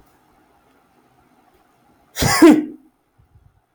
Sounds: Sneeze